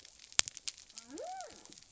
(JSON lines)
{"label": "biophony", "recorder": "SoundTrap 300"}